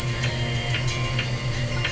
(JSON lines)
{"label": "anthrophony, boat engine", "recorder": "SoundTrap 300"}